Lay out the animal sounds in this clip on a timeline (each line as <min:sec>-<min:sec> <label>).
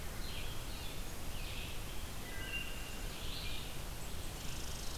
0:00.0-0:05.0 Red-eyed Vireo (Vireo olivaceus)
0:02.0-0:03.2 Wood Thrush (Hylocichla mustelina)
0:04.3-0:05.0 Red Squirrel (Tamiasciurus hudsonicus)